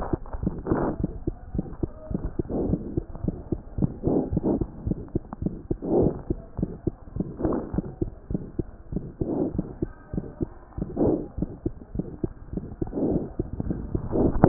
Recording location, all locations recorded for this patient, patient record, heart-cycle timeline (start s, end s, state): mitral valve (MV)
pulmonary valve (PV)+mitral valve (MV)
#Age: Child
#Sex: Male
#Height: nan
#Weight: 10.1 kg
#Pregnancy status: False
#Murmur: Present
#Murmur locations: pulmonary valve (PV)
#Most audible location: pulmonary valve (PV)
#Systolic murmur timing: Early-systolic
#Systolic murmur shape: Decrescendo
#Systolic murmur grading: I/VI
#Systolic murmur pitch: Medium
#Systolic murmur quality: Harsh
#Diastolic murmur timing: nan
#Diastolic murmur shape: nan
#Diastolic murmur grading: nan
#Diastolic murmur pitch: nan
#Diastolic murmur quality: nan
#Outcome: Abnormal
#Campaign: 2014 screening campaign
0.00	0.42	unannotated
0.42	0.52	S1
0.52	0.70	systole
0.70	0.79	S2
0.79	1.01	diastole
1.01	1.10	S1
1.10	1.26	systole
1.26	1.34	S2
1.34	1.54	diastole
1.54	1.64	S1
1.64	1.82	systole
1.82	1.90	S2
1.90	2.10	diastole
2.10	2.19	S1
2.19	2.38	systole
2.38	2.46	S2
2.46	2.70	diastole
2.70	2.79	S1
2.79	2.96	systole
2.96	3.04	S2
3.04	3.27	diastole
3.27	3.36	S1
3.36	3.52	systole
3.52	3.60	S2
3.60	3.79	diastole
3.79	14.48	unannotated